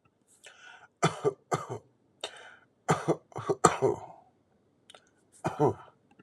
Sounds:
Cough